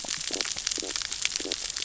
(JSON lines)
{"label": "biophony, stridulation", "recorder": "SoundTrap 600 or HydroMoth"}